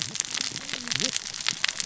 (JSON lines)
{"label": "biophony, cascading saw", "recorder": "SoundTrap 600 or HydroMoth"}